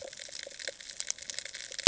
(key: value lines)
label: ambient
recorder: HydroMoth